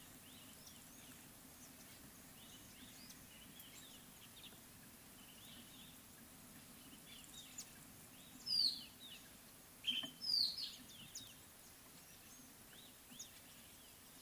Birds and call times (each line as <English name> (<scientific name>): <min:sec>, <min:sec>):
Mocking Cliff-Chat (Thamnolaea cinnamomeiventris): 0:08.6, 0:09.9, 0:10.4
Red-backed Scrub-Robin (Cercotrichas leucophrys): 0:12.8